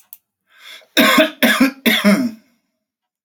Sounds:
Cough